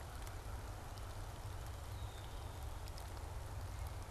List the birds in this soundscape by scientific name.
Agelaius phoeniceus